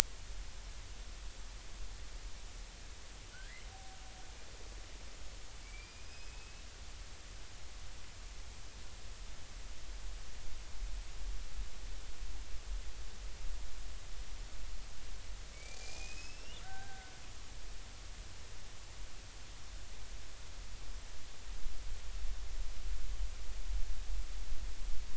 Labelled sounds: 3.3	3.6	killer whale, Bigg's (transient), 1.4 to 2.1 kHz
5.6	6.6	killer whale, Bigg's (transient), 2.2 to 5.2 kHz
15.5	17.1	killer whale, Bigg's (transient), 0.80 to 5.6 kHz

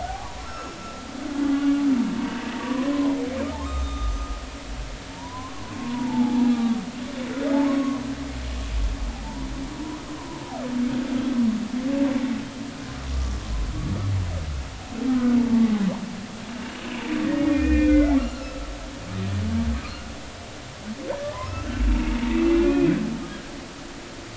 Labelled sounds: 0.0	1.8	humpback whale, 0.80 to 1.6 kHz
2.2	3.2	humpback whale, 0.90 to 1.6 kHz
3.7	5.8	humpback whale, 0.86 to 3.7 kHz
6.5	8.0	humpback whale, 0.80 to 1.2 kHz
9.2	9.5	humpback whale, 0.83 to 1.0 kHz
16.6	18.7	humpback whale, 1.2 to 3.0 kHz
21.3	21.7	humpback whale, 0.93 to 1.4 kHz
22.1	22.9	humpback whale, 0.86 to 2.8 kHz

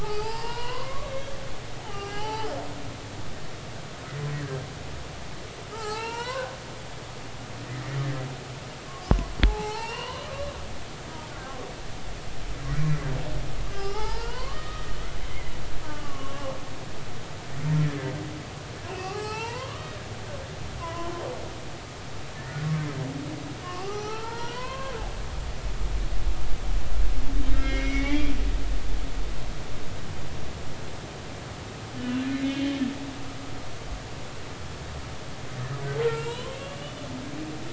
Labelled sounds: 0.0	1.3	humpback whale, 0.80 to 5.2 kHz
1.8	2.6	humpback whale, 0.80 to 5.7 kHz
5.7	6.6	humpback whale, 0.80 to 5.9 kHz
7.7	7.9	humpback whale, 1.8 to 2.1 kHz
8.9	10.3	humpback whale, 0.80 to 3.1 kHz
13.7	14.8	humpback whale, 0.80 to 5.3 kHz
15.9	16.5	humpback whale, 1.0 to 1.2 kHz
18.9	19.9	humpback whale, 0.80 to 2.9 kHz
20.8	21.1	humpback whale, 0.93 to 1.1 kHz
23.6	25.5	humpback whale, 0.80 to 4.4 kHz
27.5	28.3	humpback whale, 1.6 to 6.0 kHz
32.0	32.6	humpback whale, 1.4 to 3.0 kHz
36.0	37.0	humpback whale, 0.90 to 3.2 kHz

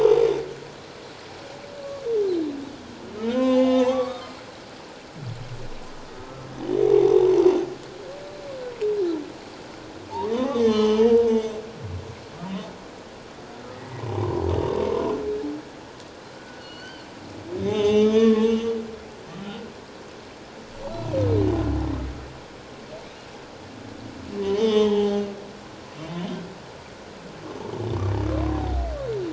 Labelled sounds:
3.1	4.4	humpback whale, 0.78 to 4.7 kHz
10.1	11.5	humpback whale, 0.78 to 6.3 kHz
13.7	14.4	humpback whale, 0.78 to 2.1 kHz
16.4	17.1	humpback whale, 1.4 to 4.8 kHz
17.6	18.8	humpback whale, 0.78 to 6.4 kHz
24.4	25.2	humpback whale, 0.78 to 6.4 kHz
26.2	26.4	humpback whale, 3.0 to 3.3 kHz
28.5	28.9	humpback whale, 0.78 to 0.81 kHz

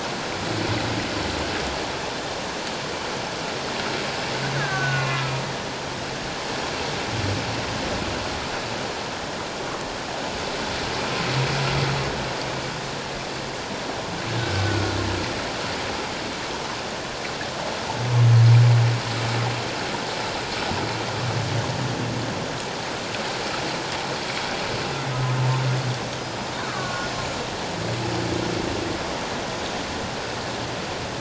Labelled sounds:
4.6	5.4	killer whale, Bigg's (transient), 1.2 to 1.8 kHz
4.9	5.3	humpback whale, 0.97 to 2.5 kHz
14.4	14.6	killer whale, Bigg's (transient), 1.4 to 1.6 kHz
26.2	26.5	humpback whale, 4.9 to 5.1 kHz
26.7	27.1	killer whale, Bigg's (transient), 1.1 to 1.7 kHz

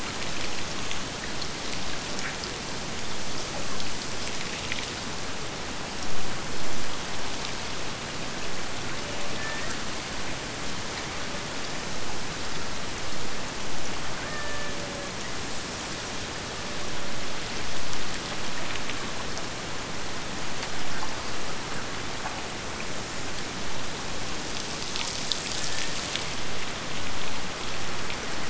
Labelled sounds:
8.8	9.9	killer whale, Bigg's (transient), AT1 transient, 0.41 to 3.0 kHz
14.1	15.3	killer whale, Bigg's (transient), AT1 transient, 0.46 to 3.1 kHz
25.5	26.0	killer whale, Bigg's (transient), AT1 transient, 1.6 to 2.0 kHz

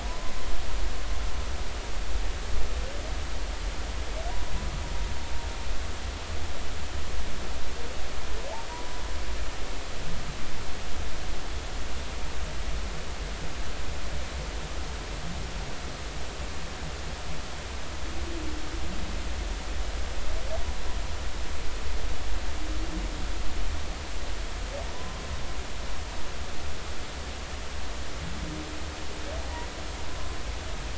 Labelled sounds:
0.0	0.3	humpback whale, 0.93 to 1.1 kHz
24.9	25.2	humpback whale, 0.96 to 1.1 kHz

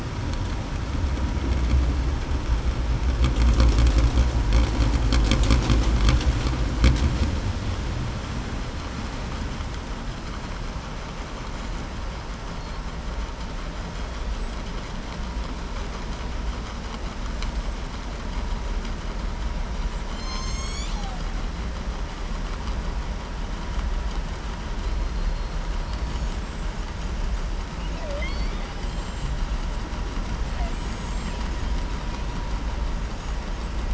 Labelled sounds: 20.0	21.2	killer whale, southern resident, 0.83 to 7.9 kHz
25.8	26.3	killer whale, southern resident, 4.2 to 5.3 kHz
27.9	28.7	killer whale, southern resident, 0.57 to 5.1 kHz
30.6	31.4	killer whale, southern resident, 6.4 to 8.0 kHz

